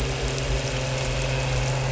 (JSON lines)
{"label": "anthrophony, boat engine", "recorder": "SoundTrap 300"}